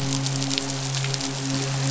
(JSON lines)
{"label": "biophony, midshipman", "recorder": "SoundTrap 500"}